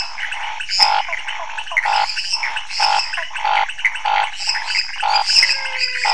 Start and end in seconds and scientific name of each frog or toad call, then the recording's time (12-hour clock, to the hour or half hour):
0.0	6.1	Leptodactylus podicipinus
0.0	6.1	Pithecopus azureus
0.0	6.1	Scinax fuscovarius
0.7	6.1	Dendropsophus minutus
1.0	1.8	Physalaemus nattereri
3.1	3.3	Physalaemus nattereri
5.1	6.1	Physalaemus albonotatus
10pm